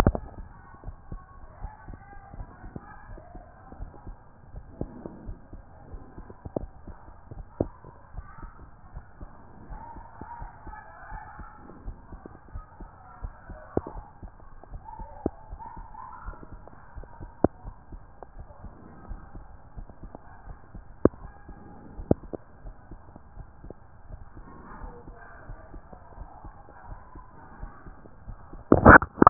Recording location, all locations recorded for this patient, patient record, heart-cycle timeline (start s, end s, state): aortic valve (AV)
aortic valve (AV)+pulmonary valve (PV)+tricuspid valve (TV)+mitral valve (MV)
#Age: Child
#Sex: Male
#Height: 153.0 cm
#Weight: 53.4 kg
#Pregnancy status: False
#Murmur: Absent
#Murmur locations: nan
#Most audible location: nan
#Systolic murmur timing: nan
#Systolic murmur shape: nan
#Systolic murmur grading: nan
#Systolic murmur pitch: nan
#Systolic murmur quality: nan
#Diastolic murmur timing: nan
#Diastolic murmur shape: nan
#Diastolic murmur grading: nan
#Diastolic murmur pitch: nan
#Diastolic murmur quality: nan
#Outcome: Abnormal
#Campaign: 2014 screening campaign
0.00	8.14	unannotated
8.14	8.25	S1
8.25	8.42	systole
8.42	8.52	S2
8.52	8.94	diastole
8.94	9.04	S1
9.04	9.20	systole
9.20	9.30	S2
9.30	9.70	diastole
9.70	9.82	S1
9.82	9.96	systole
9.96	10.06	S2
10.06	10.40	diastole
10.40	10.51	S1
10.51	10.66	systole
10.66	10.76	S2
10.76	11.12	diastole
11.12	11.22	S1
11.22	11.38	systole
11.38	11.48	S2
11.48	11.84	diastole
11.84	11.96	S1
11.96	12.12	systole
12.12	12.22	S2
12.22	12.54	diastole
12.54	12.64	S1
12.64	12.80	systole
12.80	12.90	S2
12.90	13.22	diastole
13.22	29.30	unannotated